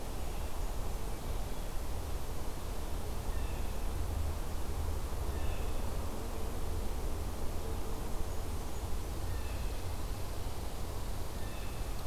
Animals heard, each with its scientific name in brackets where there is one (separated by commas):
Blue Jay (Cyanocitta cristata)